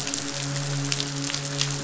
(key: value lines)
label: biophony, midshipman
recorder: SoundTrap 500